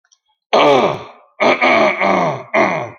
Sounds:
Throat clearing